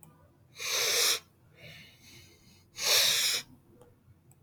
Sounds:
Sniff